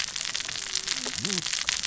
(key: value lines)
label: biophony, cascading saw
recorder: SoundTrap 600 or HydroMoth